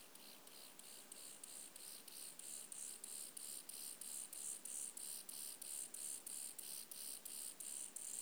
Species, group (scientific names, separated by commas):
Chorthippus mollis, Orthoptera